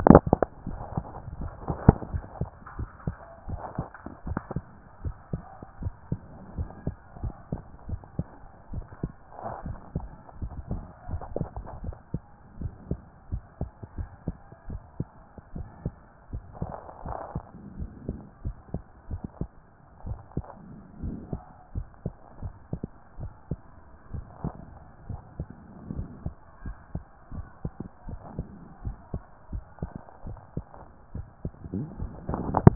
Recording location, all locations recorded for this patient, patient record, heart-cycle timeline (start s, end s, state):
tricuspid valve (TV)
aortic valve (AV)+pulmonary valve (PV)+tricuspid valve (TV)+mitral valve (MV)
#Age: Child
#Sex: Male
#Height: 141.0 cm
#Weight: 37.5 kg
#Pregnancy status: False
#Murmur: Absent
#Murmur locations: nan
#Most audible location: nan
#Systolic murmur timing: nan
#Systolic murmur shape: nan
#Systolic murmur grading: nan
#Systolic murmur pitch: nan
#Systolic murmur quality: nan
#Diastolic murmur timing: nan
#Diastolic murmur shape: nan
#Diastolic murmur grading: nan
#Diastolic murmur pitch: nan
#Diastolic murmur quality: nan
#Outcome: Normal
#Campaign: 2014 screening campaign
0.00	0.22	S1
0.22	0.40	systole
0.40	0.46	S2
0.46	0.66	diastole
0.66	0.80	S1
0.80	0.94	systole
0.94	1.04	S2
1.04	1.38	diastole
1.38	1.52	S1
1.52	1.68	systole
1.68	1.78	S2
1.78	2.12	diastole
2.12	2.24	S1
2.24	2.40	systole
2.40	2.50	S2
2.50	2.78	diastole
2.78	2.90	S1
2.90	3.06	systole
3.06	3.16	S2
3.16	3.48	diastole
3.48	3.60	S1
3.60	3.78	systole
3.78	3.86	S2
3.86	4.26	diastole
4.26	4.40	S1
4.40	4.54	systole
4.54	4.64	S2
4.64	5.04	diastole
5.04	5.16	S1
5.16	5.32	systole
5.32	5.42	S2
5.42	5.82	diastole
5.82	5.94	S1
5.94	6.10	systole
6.10	6.20	S2
6.20	6.56	diastole
6.56	6.70	S1
6.70	6.86	systole
6.86	6.96	S2
6.96	7.22	diastole
7.22	7.34	S1
7.34	7.52	systole
7.52	7.62	S2
7.62	7.88	diastole
7.88	8.00	S1
8.00	8.18	systole
8.18	8.26	S2
8.26	8.72	diastole
8.72	8.84	S1
8.84	9.02	systole
9.02	9.12	S2
9.12	9.64	diastole
9.64	9.78	S1
9.78	9.96	systole
9.96	10.06	S2
10.06	10.42	diastole
10.42	10.54	S1
10.54	10.70	systole
10.70	10.82	S2
10.82	11.10	diastole
11.10	11.22	S1
11.22	11.38	systole
11.38	11.48	S2
11.48	11.82	diastole
11.82	11.96	S1
11.96	12.12	systole
12.12	12.22	S2
12.22	12.60	diastole
12.60	12.72	S1
12.72	12.90	systole
12.90	13.00	S2
13.00	13.32	diastole
13.32	13.42	S1
13.42	13.60	systole
13.60	13.70	S2
13.70	13.98	diastole
13.98	14.10	S1
14.10	14.26	systole
14.26	14.36	S2
14.36	14.68	diastole
14.68	14.80	S1
14.80	14.98	systole
14.98	15.08	S2
15.08	15.54	diastole
15.54	15.68	S1
15.68	15.84	systole
15.84	15.94	S2
15.94	16.32	diastole
16.32	16.44	S1
16.44	16.60	systole
16.60	16.70	S2
16.70	17.04	diastole
17.04	17.18	S1
17.18	17.34	systole
17.34	17.44	S2
17.44	17.78	diastole
17.78	17.90	S1
17.90	18.08	systole
18.08	18.18	S2
18.18	18.44	diastole
18.44	18.56	S1
18.56	18.72	systole
18.72	18.82	S2
18.82	19.10	diastole
19.10	19.22	S1
19.22	19.40	systole
19.40	19.50	S2
19.50	20.06	diastole
20.06	20.18	S1
20.18	20.36	systole
20.36	20.46	S2
20.46	21.02	diastole
21.02	21.16	S1
21.16	21.32	systole
21.32	21.42	S2
21.42	21.76	diastole
21.76	21.86	S1
21.86	22.04	systole
22.04	22.14	S2
22.14	22.42	diastole
22.42	22.54	S1
22.54	22.72	systole
22.72	22.82	S2
22.82	23.20	diastole
23.20	23.32	S1
23.32	23.50	systole
23.50	23.58	S2
23.58	24.14	diastole
24.14	24.26	S1
24.26	24.44	systole
24.44	24.54	S2
24.54	25.08	diastole
25.08	25.20	S1
25.20	25.38	systole
25.38	25.48	S2
25.48	25.94	diastole
25.94	26.08	S1
26.08	26.24	systole
26.24	26.34	S2
26.34	26.64	diastole
26.64	26.76	S1
26.76	26.94	systole
26.94	27.04	S2
27.04	27.34	diastole
27.34	27.46	S1
27.46	27.64	systole
27.64	27.72	S2
27.72	28.08	diastole
28.08	28.20	S1
28.20	28.36	systole
28.36	28.46	S2
28.46	28.84	diastole
28.84	28.96	S1
28.96	29.12	systole
29.12	29.22	S2
29.22	29.52	diastole
29.52	29.64	S1
29.64	29.80	systole
29.80	29.90	S2
29.90	30.26	diastole
30.26	30.38	S1
30.38	30.56	systole
30.56	30.66	S2
30.66	31.14	diastole
31.14	31.26	S1
31.26	31.44	systole
31.44	31.52	S2
31.52	31.76	diastole
31.76	31.88	S1
31.88	32.00	systole
32.00	32.12	S2
32.12	32.30	diastole
32.30	32.44	S1
32.44	32.54	systole
32.54	32.75	S2